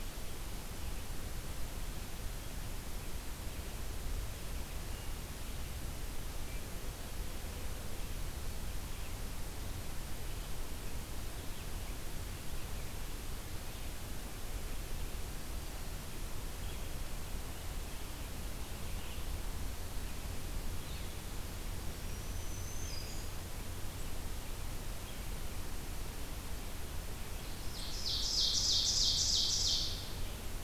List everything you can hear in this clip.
Red-eyed Vireo, Black-throated Green Warbler, Ovenbird